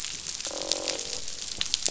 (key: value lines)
label: biophony, croak
recorder: SoundTrap 500